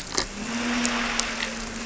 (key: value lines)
label: anthrophony, boat engine
recorder: SoundTrap 300